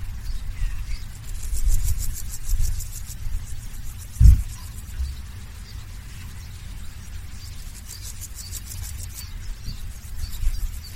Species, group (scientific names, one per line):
Pseudochorthippus parallelus
Orthoptera